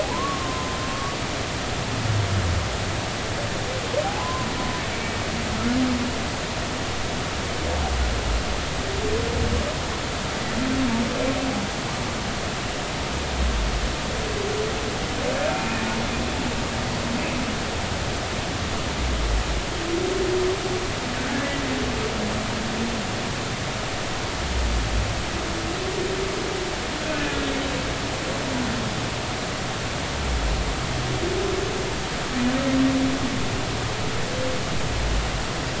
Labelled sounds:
0.0	1.2	humpback whale, 0.80 to 1.2 kHz
4.2	4.5	humpback whale, 0.96 to 1.1 kHz
15.5	15.9	humpback whale, 2.4 to 2.6 kHz
27.0	27.3	humpback whale, 1.4 to 1.6 kHz

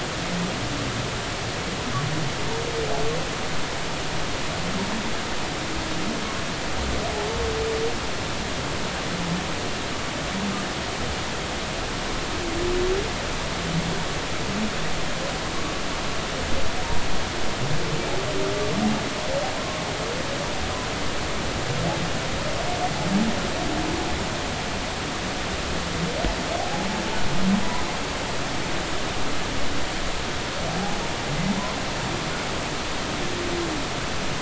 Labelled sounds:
19.6	19.8	humpback whale, 0.99 to 1.2 kHz
26.6	26.9	humpback whale, 0.80 to 0.86 kHz
30.8	31.0	humpback whale, 0.80 to 0.86 kHz

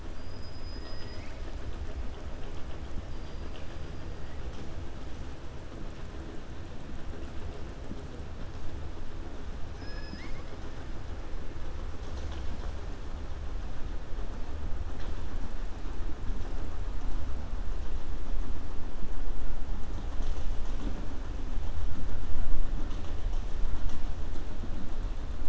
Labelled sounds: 0.1	1.4	killer whale, 1.5 to 6.6 kHz
9.7	10.5	killer whale, 1.1 to 6.0 kHz

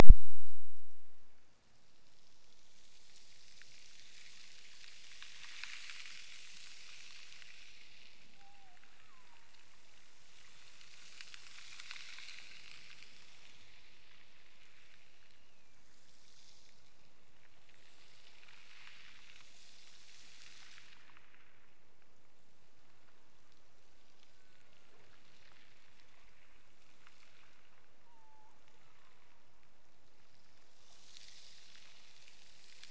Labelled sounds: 8.3	9.5	killer whale, Bigg's (transient), Gulf of Alaska transient, 0.46 to 1.5 kHz
15.2	16.0	killer whale, Bigg's (transient), Gulf of Alaska transient, 2.1 to 3.0 kHz
28.1	29.5	killer whale, Bigg's (transient), Gulf of Alaska transient, 0.71 to 1.3 kHz

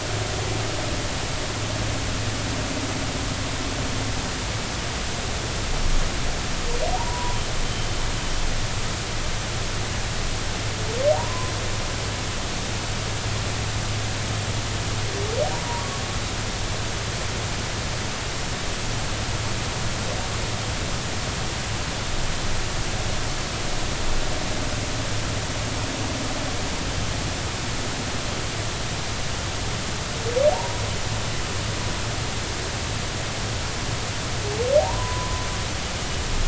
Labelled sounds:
7.0	7.9	humpback whale, 0.86 to 3.2 kHz
11.1	11.5	humpback whale, 0.80 to 1.1 kHz
15.5	15.8	humpback whale, 0.90 to 0.99 kHz
30.5	30.8	humpback whale, 0.80 to 1.1 kHz
34.8	35.4	humpback whale, 0.80 to 1.1 kHz

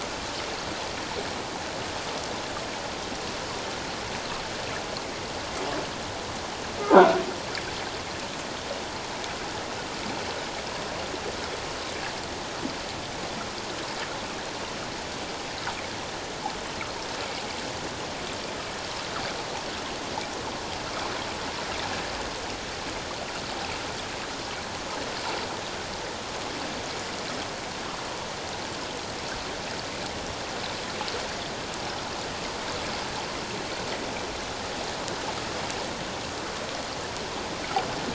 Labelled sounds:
6.9	7.2	croaking sound likely from a nearby submerged object, 1.3 to 1.7 kHz

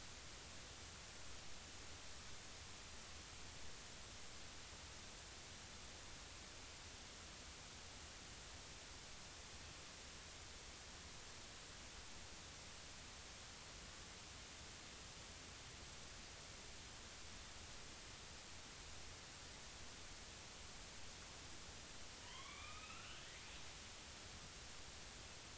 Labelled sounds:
22.2	23.4	killer whale, northern resident, A clan, AB subclan, 0.93 to 3.7 kHz

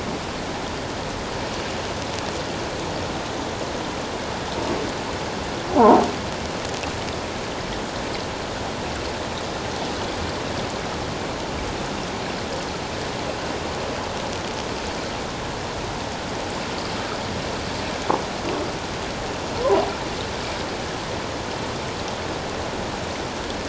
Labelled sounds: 5.7	6.0	croaking sound likely from a nearby submerged object, 0.78 to 1.1 kHz

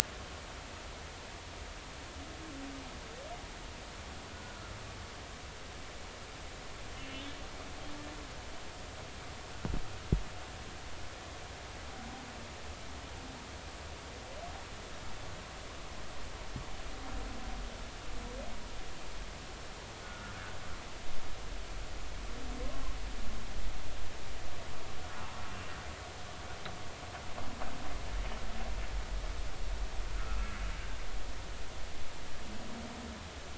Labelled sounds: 4.3	4.7	humpback whale, 1.3 to 1.5 kHz
6.9	7.3	humpback whale, 2.9 to 3.2 kHz
20.0	20.3	humpback whale, 1.3 to 1.5 kHz
22.6	23.0	humpback whale, 0.99 to 1.1 kHz
25.5	25.7	humpback whale, 2.7 to 2.8 kHz

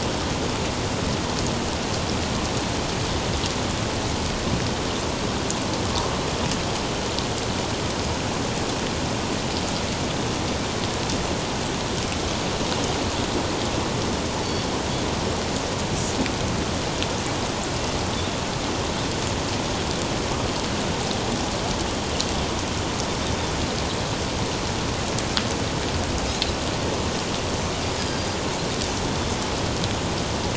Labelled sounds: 26.3	26.5	Pacific white-sided dolphin, 3.8 to 4.2 kHz
28.0	28.4	Pacific white-sided dolphin, 4.7 to 5.1 kHz

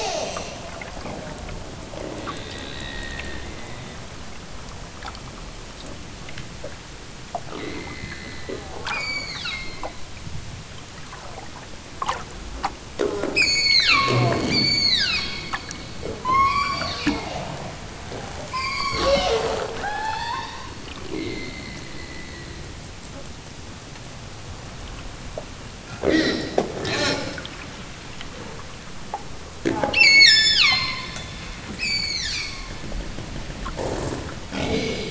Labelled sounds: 8.9	10.0	killer whale, southern Alaska resident, 0.73 to 8.0 kHz
13.3	15.6	killer whale, southern Alaska resident, 0.55 to 8.0 kHz
16.2	17.4	killer whale, southern Alaska resident, 0.69 to 8.0 kHz
18.4	19.4	killer whale, southern Alaska resident, 0.64 to 8.0 kHz
19.8	20.8	killer whale, southern Alaska resident, 0.46 to 8.0 kHz
30.0	31.1	killer whale, southern Alaska resident, 0.78 to 8.0 kHz
31.7	32.7	killer whale, southern Alaska resident, 0.73 to 8.0 kHz

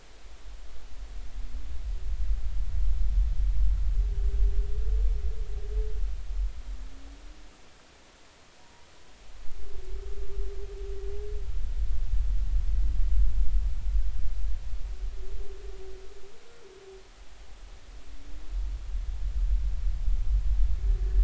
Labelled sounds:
8.6	8.9	humpback whale, 0.90 to 1.0 kHz

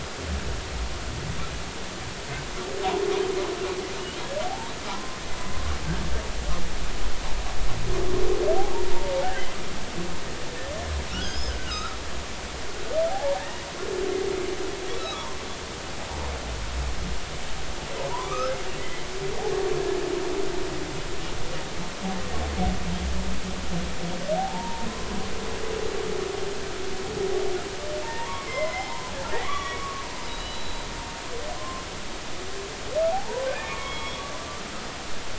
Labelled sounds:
4.4	5.2	humpback whale, 0.80 to 1.1 kHz
8.9	9.6	humpback whale, 0.80 to 2.1 kHz
11.1	12.0	humpback whale, 1.2 to 5.3 kHz
13.1	13.7	humpback whale, 0.80 to 2.0 kHz
15.0	15.4	humpback whale, 0.90 to 1.4 kHz
18.1	19.1	humpback whale, 0.90 to 2.2 kHz
24.4	25.1	humpback whale, 0.80 to 1.2 kHz
28.0	30.9	humpback whale, 0.80 to 5.3 kHz
31.6	31.9	humpback whale, 0.99 to 1.1 kHz
33.1	34.3	humpback whale, 0.80 to 3.4 kHz

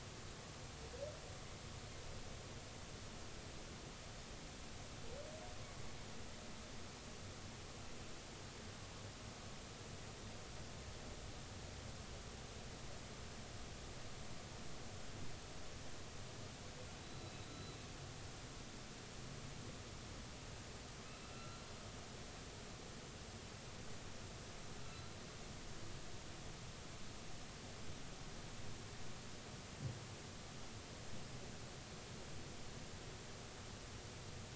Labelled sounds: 17.0	17.8	humpback whale, 3.8 to 4.0 kHz
21.2	21.6	humpback whale, 1.2 to 1.4 kHz
24.8	25.1	humpback whale, 1.3 to 1.5 kHz

